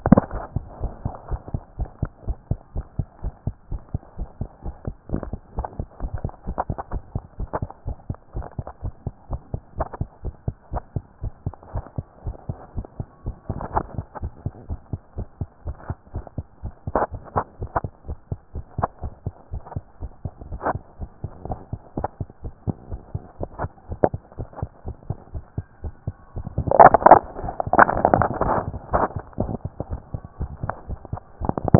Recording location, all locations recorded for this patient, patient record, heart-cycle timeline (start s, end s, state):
pulmonary valve (PV)
aortic valve (AV)+pulmonary valve (PV)+tricuspid valve (TV)+mitral valve (MV)
#Age: Child
#Sex: Female
#Height: 112.0 cm
#Weight: 20.6 kg
#Pregnancy status: False
#Murmur: Absent
#Murmur locations: nan
#Most audible location: nan
#Systolic murmur timing: nan
#Systolic murmur shape: nan
#Systolic murmur grading: nan
#Systolic murmur pitch: nan
#Systolic murmur quality: nan
#Diastolic murmur timing: nan
#Diastolic murmur shape: nan
#Diastolic murmur grading: nan
#Diastolic murmur pitch: nan
#Diastolic murmur quality: nan
#Outcome: Normal
#Campaign: 2014 screening campaign
0.16	0.32	diastole
0.32	0.44	S1
0.44	0.52	systole
0.52	0.64	S2
0.64	0.80	diastole
0.80	0.92	S1
0.92	1.02	systole
1.02	1.16	S2
1.16	1.30	diastole
1.30	1.44	S1
1.44	1.50	systole
1.50	1.64	S2
1.64	1.80	diastole
1.80	1.92	S1
1.92	2.00	systole
2.00	2.10	S2
2.10	2.26	diastole
2.26	2.40	S1
2.40	2.48	systole
2.48	2.58	S2
2.58	2.72	diastole
2.72	2.86	S1
2.86	2.94	systole
2.94	3.08	S2
3.08	3.24	diastole
3.24	3.34	S1
3.34	3.44	systole
3.44	3.54	S2
3.54	3.70	diastole
3.70	3.82	S1
3.82	3.90	systole
3.90	4.04	S2
4.04	4.20	diastole
4.20	4.30	S1
4.30	4.40	systole
4.40	4.50	S2
4.50	4.64	diastole
4.64	4.76	S1
4.76	4.84	systole
4.84	4.96	S2
4.96	5.10	diastole
5.10	5.24	S1
5.24	5.30	systole
5.30	5.40	S2
5.40	5.56	diastole
5.56	5.70	S1
5.70	5.76	systole
5.76	5.86	S2
5.86	6.02	diastole
6.02	6.12	S1
6.12	6.22	systole
6.22	6.32	S2
6.32	6.46	diastole
6.46	6.58	S1
6.58	6.66	systole
6.66	6.78	S2
6.78	6.92	diastole
6.92	7.04	S1
7.04	7.12	systole
7.12	7.22	S2
7.22	7.38	diastole
7.38	7.50	S1
7.50	7.60	systole
7.60	7.70	S2
7.70	7.84	diastole
7.84	7.98	S1
7.98	8.06	systole
8.06	8.18	S2
8.18	8.34	diastole
8.34	8.46	S1
8.46	8.54	systole
8.54	8.66	S2
8.66	8.82	diastole
8.82	8.94	S1
8.94	9.04	systole
9.04	9.14	S2
9.14	9.30	diastole
9.30	9.42	S1
9.42	9.50	systole
9.50	9.62	S2
9.62	9.78	diastole
9.78	9.88	S1
9.88	9.98	systole
9.98	10.08	S2
10.08	10.24	diastole
10.24	10.34	S1
10.34	10.44	systole
10.44	10.56	S2
10.56	10.72	diastole
10.72	10.84	S1
10.84	10.92	systole
10.92	11.04	S2
11.04	11.22	diastole
11.22	11.34	S1
11.34	11.42	systole
11.42	11.54	S2
11.54	11.72	diastole
11.72	11.84	S1
11.84	11.94	systole
11.94	12.06	S2
12.06	12.22	diastole
12.22	12.36	S1
12.36	12.50	systole
12.50	12.60	S2
12.60	12.74	diastole
12.74	12.86	S1
12.86	12.96	systole
12.96	13.06	S2
13.06	13.24	diastole
13.24	13.36	S1
13.36	13.48	systole
13.48	13.60	S2
13.60	13.74	diastole
13.74	13.88	S1
13.88	13.96	systole
13.96	14.06	S2
14.06	14.22	diastole
14.22	14.32	S1
14.32	14.44	systole
14.44	14.54	S2
14.54	14.68	diastole
14.68	14.80	S1
14.80	14.94	systole
14.94	15.00	S2
15.00	15.16	diastole
15.16	15.26	S1
15.26	15.40	systole
15.40	15.50	S2
15.50	15.66	diastole
15.66	15.78	S1
15.78	15.88	systole
15.88	15.98	S2
15.98	16.14	diastole
16.14	16.26	S1
16.26	16.34	systole
16.34	16.46	S2
16.46	16.62	diastole
16.62	16.72	S1
16.72	16.86	systole
16.86	16.96	S2
16.96	17.12	diastole
17.12	17.22	S1
17.22	17.34	systole
17.34	17.46	S2
17.46	17.60	diastole
17.60	17.70	S1
17.70	17.82	systole
17.82	17.92	S2
17.92	18.08	diastole
18.08	18.18	S1
18.18	18.30	systole
18.30	18.40	S2
18.40	18.56	diastole
18.56	18.66	S1
18.66	18.78	systole
18.78	18.90	S2
18.90	19.04	diastole
19.04	19.14	S1
19.14	19.22	systole
19.22	19.34	S2
19.34	19.52	diastole
19.52	19.64	S1
19.64	19.72	systole
19.72	19.84	S2
19.84	20.02	diastole
20.02	20.12	S1
20.12	20.24	systole
20.24	20.34	S2
20.34	20.50	diastole
20.50	20.62	S1
20.62	20.74	systole
20.74	20.84	S2
20.84	21.00	diastole
21.00	21.10	S1
21.10	21.20	systole
21.20	21.32	S2
21.32	21.46	diastole
21.46	21.60	S1
21.60	21.72	systole
21.72	21.80	S2
21.80	21.98	diastole
21.98	22.10	S1
22.10	22.20	systole
22.20	22.28	S2
22.28	22.44	diastole
22.44	22.54	S1
22.54	22.64	systole
22.64	22.76	S2
22.76	22.90	diastole
22.90	23.02	S1
23.02	23.10	systole
23.10	23.22	S2
23.22	23.40	diastole
23.40	23.50	S1
23.50	23.58	systole
23.58	23.72	S2
23.72	23.90	diastole
23.90	24.00	S1
24.00	24.12	systole
24.12	24.22	S2
24.22	24.38	diastole
24.38	24.48	S1
24.48	24.58	systole
24.58	24.70	S2
24.70	24.86	diastole
24.86	24.96	S1
24.96	25.06	systole
25.06	25.18	S2
25.18	25.34	diastole
25.34	25.44	S1
25.44	25.54	systole
25.54	25.66	S2
25.66	25.84	diastole
25.84	25.94	S1
25.94	26.06	systole
26.06	26.16	S2
26.16	26.34	diastole
26.34	26.46	S1
26.46	26.54	systole
26.54	26.66	S2
26.66	26.80	diastole
26.80	26.98	S1
26.98	27.06	systole
27.06	27.22	S2
27.22	27.38	diastole
27.38	27.52	S1
27.52	27.64	systole
27.64	27.74	S2
27.74	27.90	diastole
27.90	28.06	S1
28.06	28.12	systole
28.12	28.28	S2
28.28	28.40	diastole
28.40	28.58	S1
28.58	28.66	systole
28.66	28.78	S2
28.78	28.90	diastole
28.90	29.08	S1
29.08	29.14	systole
29.14	29.24	S2
29.24	29.40	diastole
29.40	29.56	S1
29.56	29.64	systole
29.64	29.74	S2
29.74	29.88	diastole
29.88	30.02	S1
30.02	30.10	systole
30.10	30.22	S2
30.22	30.40	diastole
30.40	30.52	S1
30.52	30.62	systole
30.62	30.76	S2
30.76	30.88	diastole
30.88	31.00	S1
31.00	31.12	systole
31.12	31.22	S2
31.22	31.42	diastole
31.42	31.56	S1
31.56	31.66	systole
31.66	31.79	S2